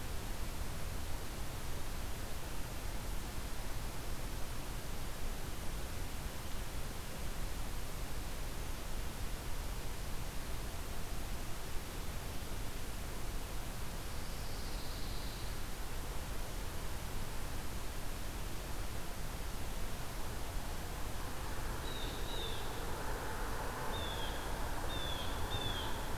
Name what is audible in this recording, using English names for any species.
Pine Warbler, Blue Jay